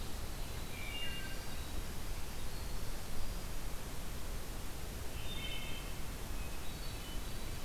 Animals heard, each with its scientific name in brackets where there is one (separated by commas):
Winter Wren (Troglodytes hiemalis), Hermit Thrush (Catharus guttatus), Wood Thrush (Hylocichla mustelina)